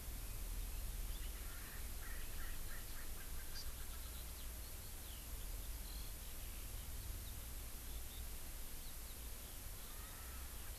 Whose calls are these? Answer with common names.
Erckel's Francolin, Eurasian Skylark, Hawaii Amakihi